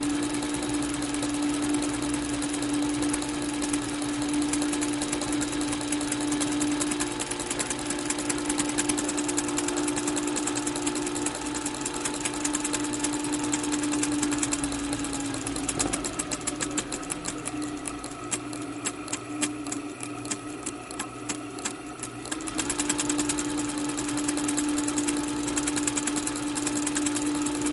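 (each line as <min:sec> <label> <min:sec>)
0:00.0 A sewing machine is running. 0:16.7
0:16.7 A sewing machine winding up. 0:22.4
0:22.3 A sewing machine is running. 0:27.7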